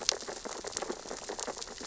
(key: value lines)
label: biophony, sea urchins (Echinidae)
recorder: SoundTrap 600 or HydroMoth